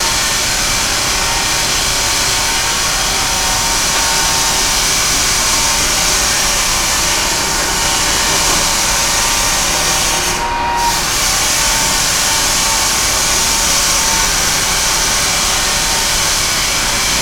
Could this be the sound of a vaccum?
yes